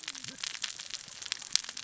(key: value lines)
label: biophony, cascading saw
recorder: SoundTrap 600 or HydroMoth